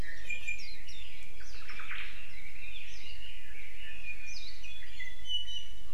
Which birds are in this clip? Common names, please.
Iiwi, Omao, Red-billed Leiothrix